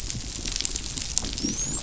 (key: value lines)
label: biophony, dolphin
recorder: SoundTrap 500